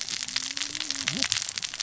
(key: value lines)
label: biophony, cascading saw
recorder: SoundTrap 600 or HydroMoth